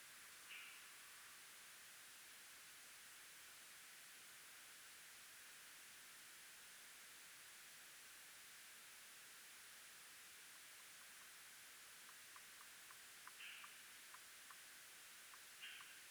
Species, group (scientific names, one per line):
Barbitistes serricauda
Orthoptera